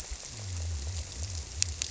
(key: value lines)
label: biophony
recorder: SoundTrap 300